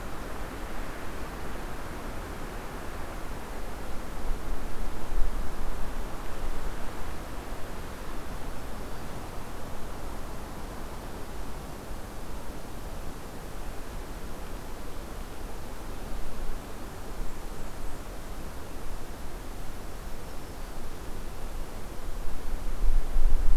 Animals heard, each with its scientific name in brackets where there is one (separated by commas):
Black-throated Green Warbler (Setophaga virens), Blackburnian Warbler (Setophaga fusca)